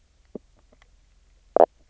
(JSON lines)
{"label": "biophony", "recorder": "SoundTrap 300"}